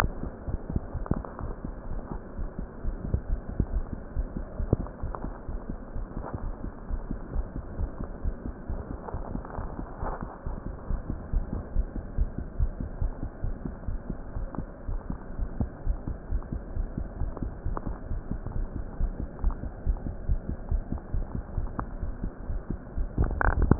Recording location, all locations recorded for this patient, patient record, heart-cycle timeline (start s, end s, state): pulmonary valve (PV)
aortic valve (AV)+pulmonary valve (PV)+tricuspid valve (TV)+mitral valve (MV)
#Age: Adolescent
#Sex: Female
#Height: 160.0 cm
#Weight: 46.7 kg
#Pregnancy status: False
#Murmur: Absent
#Murmur locations: nan
#Most audible location: nan
#Systolic murmur timing: nan
#Systolic murmur shape: nan
#Systolic murmur grading: nan
#Systolic murmur pitch: nan
#Systolic murmur quality: nan
#Diastolic murmur timing: nan
#Diastolic murmur shape: nan
#Diastolic murmur grading: nan
#Diastolic murmur pitch: nan
#Diastolic murmur quality: nan
#Outcome: Normal
#Campaign: 2015 screening campaign
0.00	10.74	unannotated
10.74	10.90	diastole
10.90	11.00	S1
11.00	11.08	systole
11.08	11.18	S2
11.18	11.34	diastole
11.34	11.46	S1
11.46	11.51	systole
11.51	11.62	S2
11.62	11.74	diastole
11.74	11.87	S1
11.87	11.95	systole
11.95	12.04	S2
12.04	12.18	diastole
12.18	12.28	S1
12.28	12.37	systole
12.37	12.45	S2
12.45	12.60	diastole
12.60	12.72	S1
12.72	12.79	systole
12.79	12.86	S2
12.86	13.01	diastole
13.01	13.13	S1
13.13	13.22	systole
13.22	13.30	S2
13.30	13.43	diastole
13.43	13.56	S1
13.56	13.64	systole
13.64	13.74	S2
13.74	13.86	diastole
13.86	14.00	S1
14.00	14.08	systole
14.08	14.16	S2
14.16	14.35	diastole
14.35	14.48	S1
14.48	14.57	systole
14.57	14.65	S2
14.65	14.88	diastole
14.88	15.02	S1
15.02	15.08	systole
15.08	15.18	S2
15.18	15.37	diastole
15.37	15.50	S1
15.50	15.58	systole
15.58	15.70	S2
15.70	15.83	diastole
15.83	15.98	S1
15.98	16.06	systole
16.06	16.14	S2
16.14	16.29	diastole
16.29	16.42	S1
16.42	16.50	systole
16.50	16.62	S2
16.62	16.74	diastole
16.74	16.88	S1
16.88	16.96	systole
16.96	17.08	S2
17.08	17.17	diastole
17.17	17.32	S1
17.32	17.38	systole
17.38	17.52	S2
17.52	17.61	diastole
17.61	17.78	S1
17.78	17.84	systole
17.84	17.96	S2
17.96	18.07	diastole
18.07	18.22	S1
18.22	18.29	systole
18.29	18.38	S2
18.38	18.54	diastole
18.54	23.79	unannotated